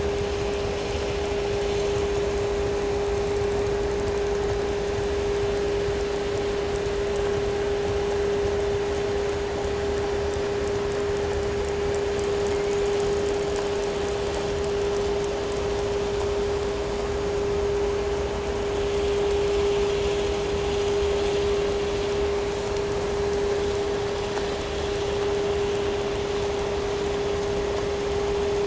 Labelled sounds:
9.8	10.7	killer whale, southern resident, 1.9 to 6.4 kHz

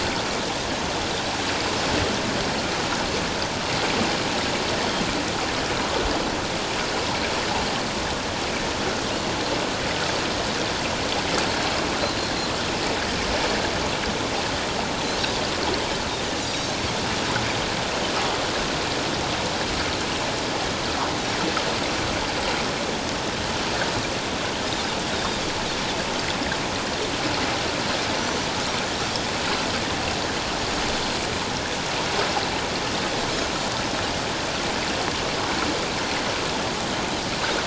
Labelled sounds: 16.4	16.7	Pacific white-sided dolphin, 3.7 to 6.0 kHz
25.1	25.4	Pacific white-sided dolphin, 3.5 to 3.9 kHz

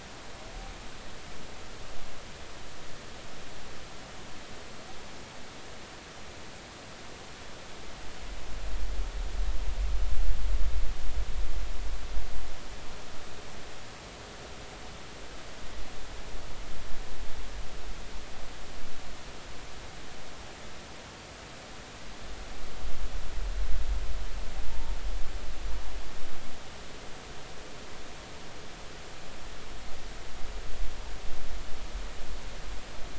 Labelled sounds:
24.7	24.9	humpback whale, 0.86 to 0.96 kHz

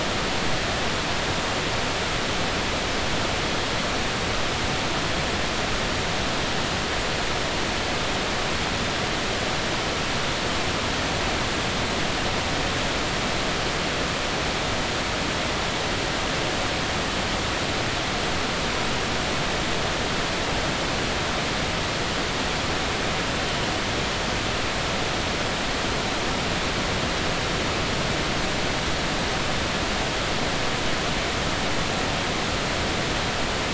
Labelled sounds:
23.4	23.7	humpback whale, 2.9 to 3.2 kHz

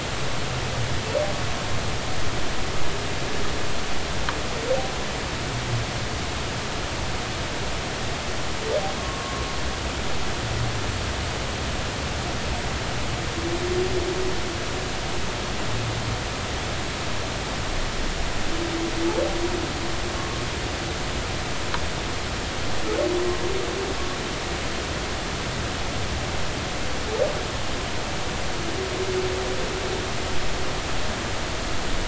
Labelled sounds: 9.0	9.4	humpback whale, 1.0 to 1.2 kHz
20.1	20.4	humpback whale, 1.1 to 1.2 kHz

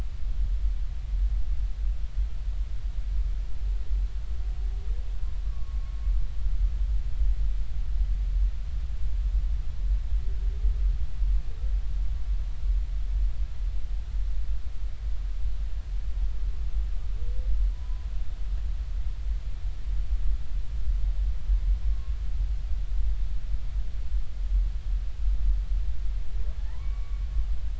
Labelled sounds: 5.4	5.8	humpback whale, 1.1 to 1.2 kHz
17.7	18.1	humpback whale, 0.96 to 1.1 kHz
26.6	27.2	humpback whale, 0.80 to 2.3 kHz

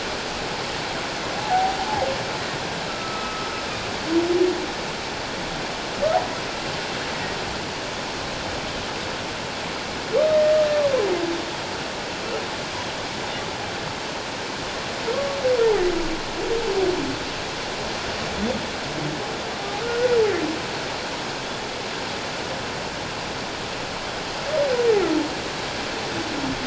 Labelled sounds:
1.3	1.8	humpback whale, 0.78 to 0.91 kHz
2.9	3.5	humpback whale, 1.2 to 1.4 kHz
19.8	20.2	humpback whale, 1.3 to 1.5 kHz

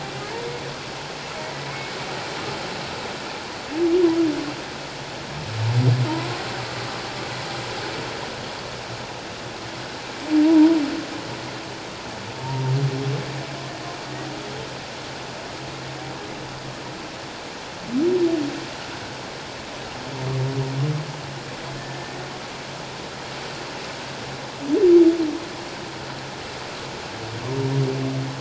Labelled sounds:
1.4	1.7	humpback whale, 1.8 to 2.0 kHz
6.1	6.4	humpback whale, 0.88 to 1.1 kHz
10.4	10.8	humpback whale, 0.88 to 1.0 kHz
12.4	12.7	humpback whale, 0.88 to 0.97 kHz

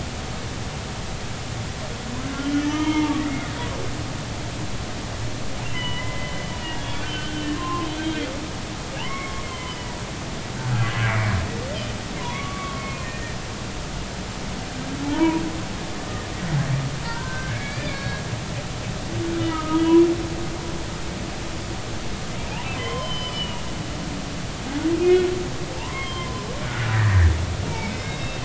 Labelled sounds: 2.5	3.6	humpback whale, 0.83 to 3.2 kHz
5.7	6.4	humpback whale, 0.93 to 3.1 kHz
6.8	7.9	humpback whale, 0.99 to 3.5 kHz
9.0	9.8	humpback whale, 0.80 to 3.2 kHz
10.6	10.9	humpback whale, 1.3 to 1.6 kHz
12.2	13.4	humpback whale, 0.90 to 2.5 kHz
16.0	18.9	humpback whale, 0.80 to 4.5 kHz
19.4	19.9	humpback whale, 1.2 to 3.0 kHz
22.8	23.7	humpback whale, 0.96 to 3.2 kHz
25.0	26.5	humpback whale, 0.86 to 3.3 kHz
26.9	28.4	humpback whale, 1.5 to 3.8 kHz

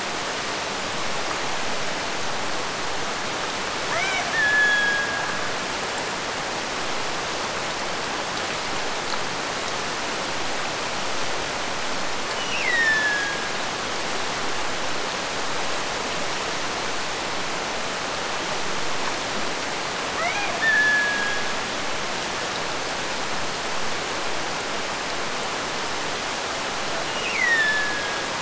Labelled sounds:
3.9	5.6	killer whale, Bigg's (transient), Gulf of Alaska transient, 0.46 to 3.5 kHz
12.3	13.7	killer whale, Bigg's (transient), Gulf of Alaska transient, 1.5 to 5.9 kHz
20.1	21.6	killer whale, Bigg's (transient), Gulf of Alaska transient, 0.44 to 3.7 kHz
27.1	28.3	killer whale, Bigg's (transient), Gulf of Alaska transient, 1.5 to 6.6 kHz

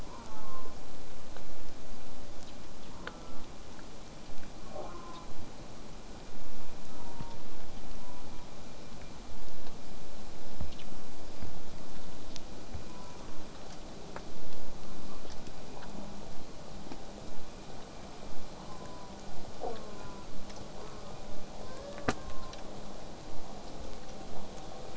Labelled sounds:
0.0	0.8	killer whale, southern resident, J pod, call S04, 0.49 to 1.6 kHz
3.0	3.5	killer whale, southern resident, J pod, call S04, 0.11 to 1.4 kHz
4.6	5.3	killer whale, southern resident, J pod, call S04, 0.19 to 1.6 kHz
6.9	7.4	killer whale, southern resident, J pod, call S04, 0.76 to 1.3 kHz
8.0	8.5	killer whale, southern resident, J pod, call S04, 0.68 to 1.0 kHz
12.9	13.2	killer whale, southern resident, J pod, call S04, 0.83 to 1.4 kHz
13.9	14.2	killer whale, southern resident, J pod, 7.7 to 8.0 kHz
18.7	19.2	killer whale, southern resident, J pod, call S04, 0.45 to 1.1 kHz
19.7	20.3	killer whale, southern resident, J pod, call S04, 0.26 to 1.6 kHz
20.8	21.2	killer whale, southern resident, J pod, call S04, 0.34 to 1.6 kHz
21.6	22.5	killer whale, southern resident, J pod, 0.34 to 1.9 kHz

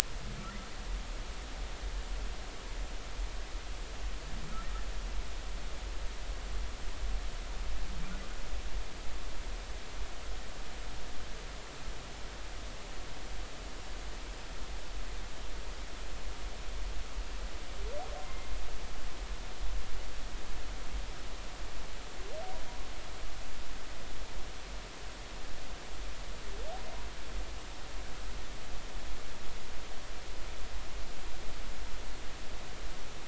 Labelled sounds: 18.2	18.5	humpback whale, 2.0 to 2.1 kHz

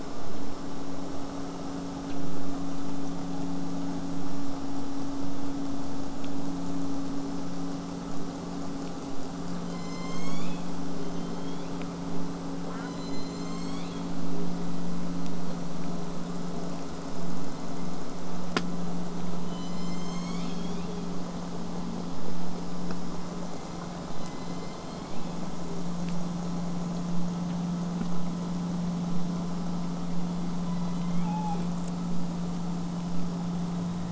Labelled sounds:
9.6	11.9	killer whale, southern resident, J pod, call S01, 0.85 to 8.0 kHz
12.6	13.0	killer whale, southern resident, J pod, call S04, 0.32 to 2.3 kHz
12.8	14.2	killer whale, southern resident, J pod, call S01, 0.93 to 8.0 kHz
17.4	18.0	killer whale, southern resident, J pod, 1.8 to 4.3 kHz
19.5	21.2	killer whale, southern resident, J pod, call S01, 1.9 to 8.0 kHz
24.1	25.9	killer whale, southern resident, J pod, call S01, 0.28 to 7.5 kHz
30.6	31.8	killer whale, southern resident, J pod, call S01, 0.20 to 4.5 kHz

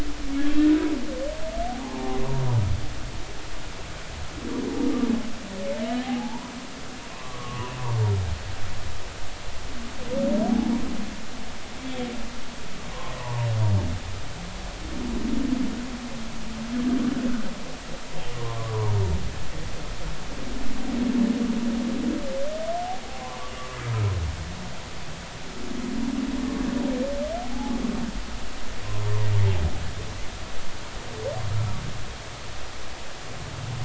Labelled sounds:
1.7	2.2	humpback whale, 0.80 to 0.99 kHz
6.0	6.5	humpback whale, 0.80 to 1.1 kHz
7.1	7.8	humpback whale, 0.93 to 1.2 kHz
13.2	13.4	humpback whale, 0.83 to 1.2 kHz
18.3	18.9	humpback whale, 0.83 to 1.2 kHz
23.2	23.5	humpback whale, 0.86 to 1.2 kHz
27.5	27.8	humpback whale, 0.80 to 0.93 kHz

